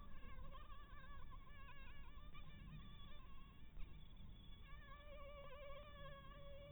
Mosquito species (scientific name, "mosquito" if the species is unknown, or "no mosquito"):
Anopheles maculatus